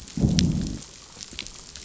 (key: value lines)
label: biophony, growl
recorder: SoundTrap 500